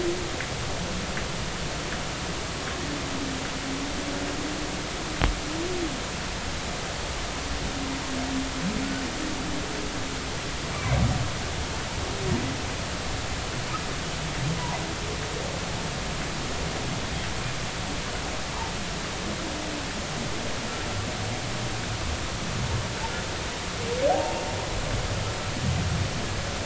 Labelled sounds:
10.7	11.0	humpback whale, 2.1 to 2.5 kHz
24.1	24.4	humpback whale, 0.80 to 0.96 kHz

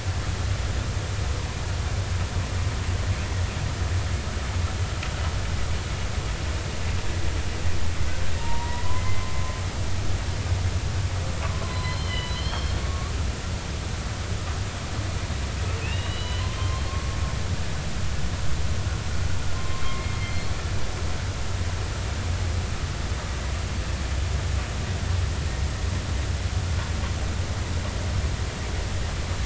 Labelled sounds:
8.4	9.2	humpback whale, 0.86 to 2.1 kHz
11.4	13.8	humpback whale, 0.93 to 4.5 kHz
15.8	17.0	humpback whale, 0.99 to 4.2 kHz
19.5	20.4	humpback whale, 0.99 to 2.2 kHz

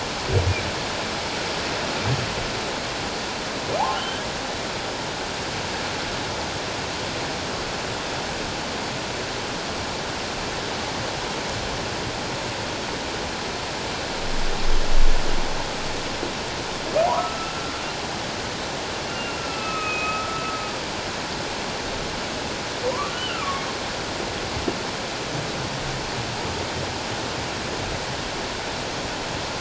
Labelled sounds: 4.0	4.2	humpback whale, 2.8 to 3.2 kHz
17.0	17.7	humpback whale, 0.78 to 1.5 kHz
19.1	20.5	humpback whale, 1.2 to 2.8 kHz
23.1	23.6	humpback whale, 1.0 to 3.1 kHz

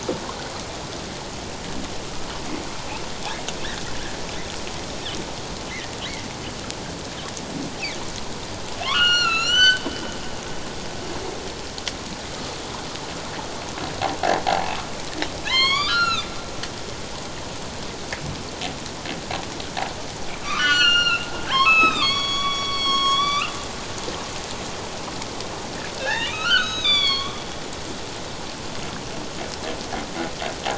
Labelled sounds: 8.8	9.8	humpback whale, 1.0 to 7.4 kHz
14.4	14.7	humpback whale, 0.78 to 0.97 kHz
15.4	16.3	humpback whale, 0.94 to 7.0 kHz
20.4	23.5	humpback whale, 0.94 to 6.8 kHz
26.0	27.4	humpback whale, 1.0 to 7.1 kHz

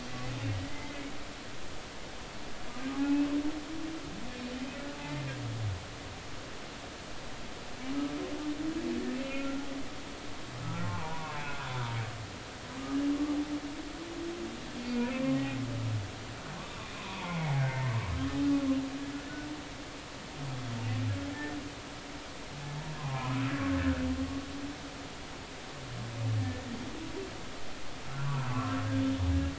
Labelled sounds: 0.6	1.0	humpback whale, 1.9 to 2.3 kHz
2.9	3.3	humpback whale, 0.80 to 2.7 kHz
5.0	5.3	humpback whale, 0.83 to 2.1 kHz
9.2	9.7	humpback whale, 1.3 to 2.8 kHz
10.6	12.0	humpback whale, 0.80 to 1.7 kHz
14.8	15.4	humpback whale, 1.0 to 2.5 kHz
16.9	17.8	humpback whale, 0.80 to 2.3 kHz
21.3	21.6	humpback whale, 1.7 to 1.9 kHz
23.0	24.1	humpback whale, 0.90 to 1.8 kHz
26.4	26.7	humpback whale, 1.7 to 1.9 kHz
28.2	28.8	humpback whale, 0.90 to 1.4 kHz

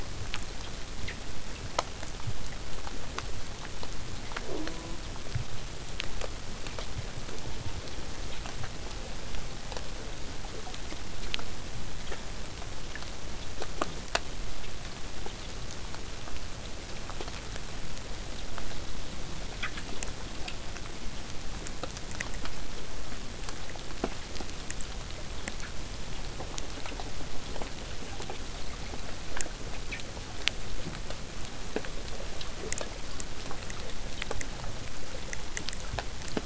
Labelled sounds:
4.4	5.1	killer whale, southern resident, J pod, call S04, 0.15 to 1.3 kHz
7.2	7.9	killer whale, southern resident, J pod, call S04, 0.15 to 1.5 kHz

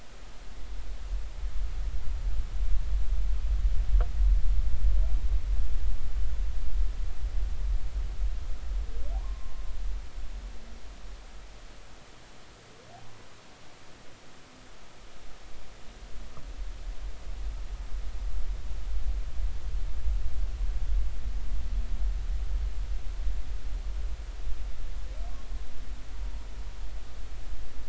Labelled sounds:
10.2	10.6	humpback whale, 0.99 to 1.1 kHz

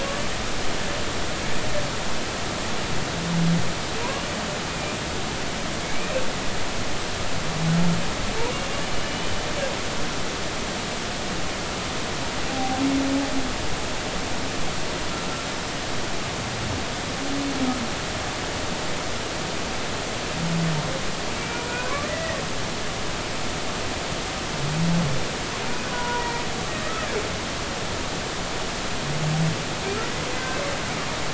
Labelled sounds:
4.0	4.2	humpback whale, 0.93 to 1.2 kHz
4.7	6.2	humpback whale, 2.1 to 2.5 kHz
9.1	9.3	humpback whale, 2.9 to 3.1 kHz
12.5	12.8	humpback whale, 0.80 to 0.86 kHz
21.4	22.4	humpback whale, 0.93 to 2.5 kHz
25.9	26.4	humpback whale, 0.90 to 2.0 kHz
26.8	27.1	humpback whale, 1.2 to 1.4 kHz
30.4	30.6	humpback whale, 1.5 to 1.6 kHz

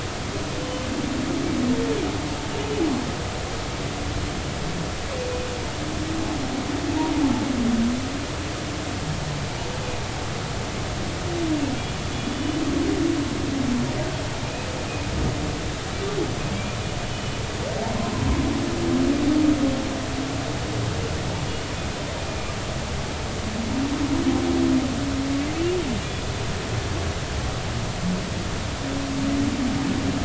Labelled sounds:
12.1	12.6	humpback whale, 2.9 to 3.5 kHz
16.5	17.3	humpback whale, 2.2 to 3.0 kHz
18.0	18.3	humpback whale, 0.96 to 1.1 kHz

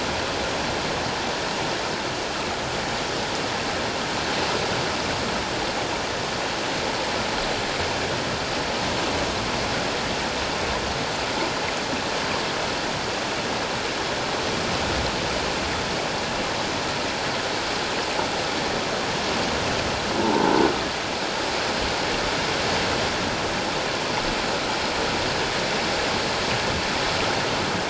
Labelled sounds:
20.2	20.5	croaking sound likely from a nearby submerged object, 0.81 to 1.1 kHz

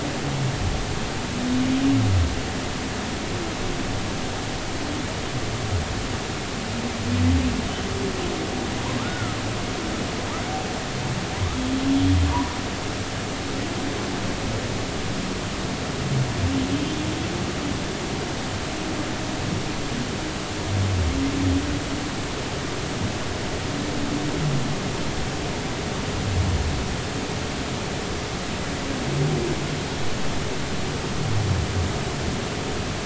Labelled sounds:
9.0	9.4	humpback whale, 1.2 to 1.5 kHz
12.3	12.6	humpback whale, 0.90 to 1.2 kHz

